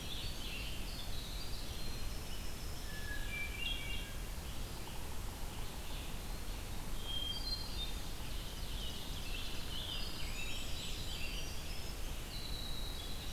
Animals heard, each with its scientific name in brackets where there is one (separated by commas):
Scarlet Tanager (Piranga olivacea), Eastern Wood-Pewee (Contopus virens), Ovenbird (Seiurus aurocapilla), Winter Wren (Troglodytes hiemalis), Hermit Thrush (Catharus guttatus), Red-eyed Vireo (Vireo olivaceus)